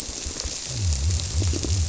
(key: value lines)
label: biophony, squirrelfish (Holocentrus)
recorder: SoundTrap 300

label: biophony
recorder: SoundTrap 300